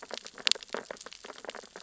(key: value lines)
label: biophony, sea urchins (Echinidae)
recorder: SoundTrap 600 or HydroMoth